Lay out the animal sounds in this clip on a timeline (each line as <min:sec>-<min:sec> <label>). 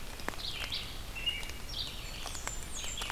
0:00.0-0:03.1 Red-eyed Vireo (Vireo olivaceus)
0:01.0-0:01.7 American Robin (Turdus migratorius)
0:01.9-0:03.1 Blackburnian Warbler (Setophaga fusca)